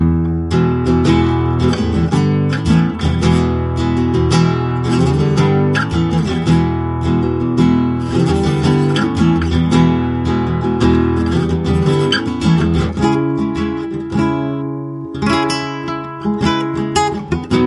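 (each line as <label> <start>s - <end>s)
A guitar plays a continuous, rhythmic sound. 0.0s - 17.7s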